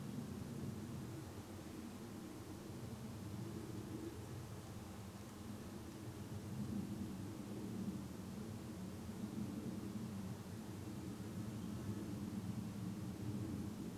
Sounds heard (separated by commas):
insect buzz, airplane